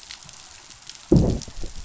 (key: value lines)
label: biophony, growl
recorder: SoundTrap 500